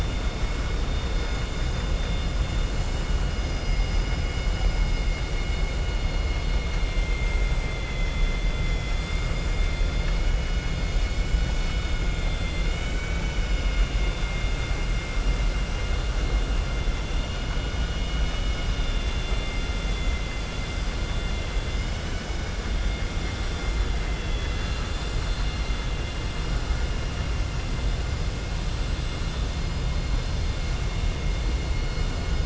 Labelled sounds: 24.0	25.0	vessel noise, 1.3 to 4.8 kHz

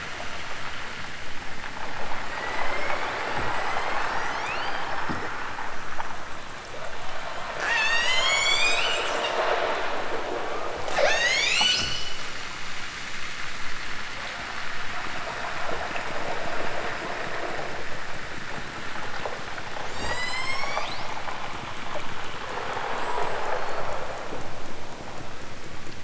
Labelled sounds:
2.1	5.3	killer whale, southern Alaska resident, 1.3 to 8.0 kHz
7.6	9.4	killer whale, southern Alaska resident, 1.2 to 8.0 kHz
10.9	12.0	killer whale, southern Alaska resident, 0.23 to 8.0 kHz
19.9	21.2	killer whale, southern Alaska resident, 0.41 to 8.0 kHz
22.8	24.1	killer whale, southern Alaska resident, 3.1 to 8.0 kHz

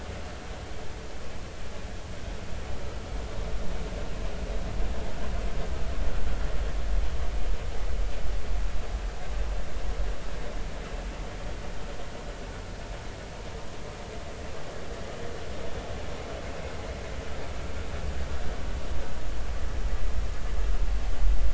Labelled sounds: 16.5	16.7	humpback whale, 2.5 to 2.7 kHz

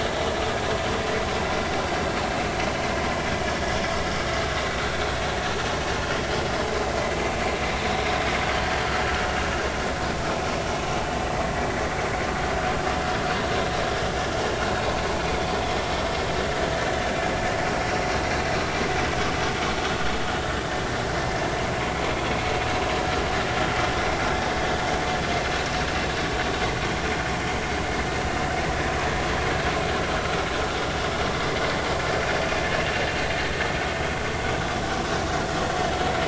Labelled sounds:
7.1	7.4	vessel noise, 2.3 to 2.4 kHz

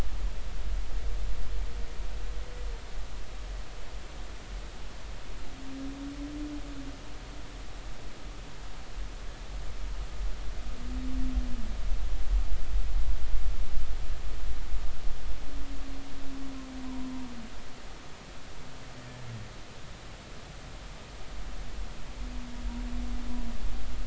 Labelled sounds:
16.8	17.1	humpback whale, 0.90 to 1.1 kHz

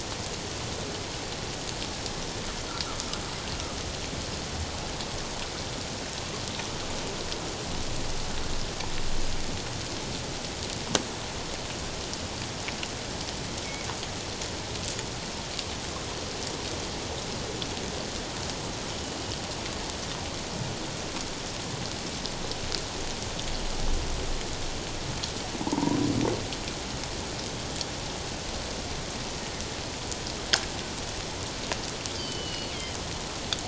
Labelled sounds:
25.6	26.0	humpback whale, 0.84 to 1.1 kHz
32.2	32.7	killer whale, northern resident, G clan, 2.8 to 4.8 kHz

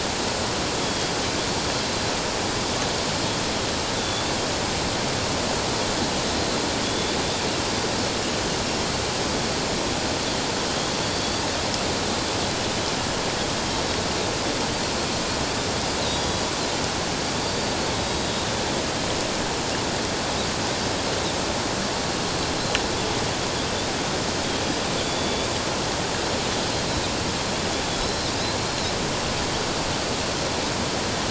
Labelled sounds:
0.8	1.1	Pacific white-sided dolphin, 3.2 to 3.4 kHz
4.0	4.3	Pacific white-sided dolphin, 3.4 to 3.7 kHz
6.8	7.2	Pacific white-sided dolphin, 3.3 to 3.6 kHz
11.0	11.4	Pacific white-sided dolphin, 4.4 to 4.8 kHz
16.1	16.4	Pacific white-sided dolphin, 3.3 to 3.5 kHz
17.4	18.3	Pacific white-sided dolphin, 3.8 to 4.8 kHz
25.0	25.5	Pacific white-sided dolphin, 3.4 to 3.6 kHz
28.0	28.9	Pacific white-sided dolphin, 3.8 to 4.3 kHz

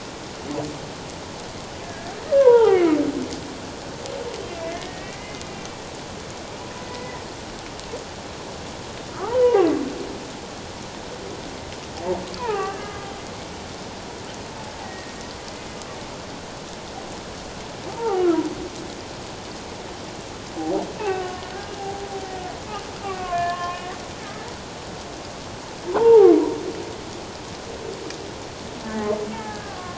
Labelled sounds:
1.8	3.0	humpback whale, 0.78 to 3.3 kHz
4.6	5.8	humpback whale, 1.7 to 2.5 kHz
6.8	7.3	humpback whale, 1.8 to 2.1 kHz
9.2	9.7	humpback whale, 0.78 to 1.0 kHz
12.4	13.0	humpback whale, 0.78 to 2.0 kHz
14.8	15.1	humpback whale, 1.8 to 2.0 kHz
17.9	18.2	humpback whale, 0.78 to 1.0 kHz
20.9	22.0	humpback whale, 0.78 to 3.0 kHz
23.0	23.8	humpback whale, 1.0 to 2.5 kHz
25.9	26.3	humpback whale, 0.78 to 1.1 kHz
29.3	29.9	humpback whale, 1.0 to 1.8 kHz

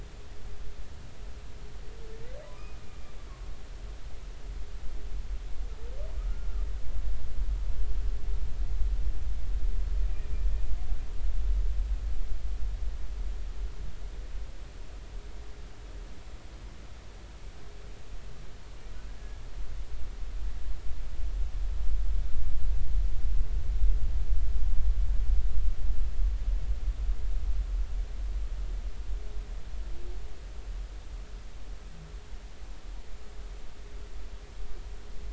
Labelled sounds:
2.5	2.8	humpback whale, 2.3 to 2.6 kHz

